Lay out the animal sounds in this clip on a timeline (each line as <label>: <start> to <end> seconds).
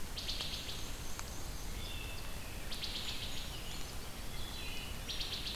Wood Thrush (Hylocichla mustelina): 0.0 to 0.9 seconds
Black-and-white Warbler (Mniotilta varia): 0.1 to 1.8 seconds
Wood Thrush (Hylocichla mustelina): 1.5 to 2.2 seconds
Wood Thrush (Hylocichla mustelina): 2.5 to 3.6 seconds
Brown Creeper (Certhia americana): 2.7 to 4.1 seconds
Wood Thrush (Hylocichla mustelina): 4.1 to 5.6 seconds